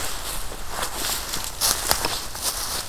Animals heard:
forest ambience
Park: Marsh-Billings-Rockefeller National Historical Park